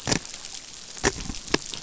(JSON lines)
{"label": "biophony", "recorder": "SoundTrap 500"}